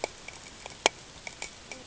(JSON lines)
{"label": "ambient", "recorder": "HydroMoth"}